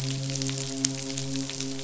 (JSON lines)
{"label": "biophony, midshipman", "recorder": "SoundTrap 500"}